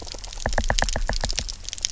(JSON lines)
{"label": "biophony, knock", "recorder": "SoundTrap 300"}